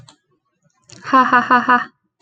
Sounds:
Laughter